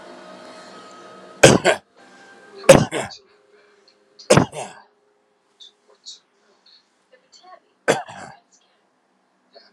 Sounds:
Cough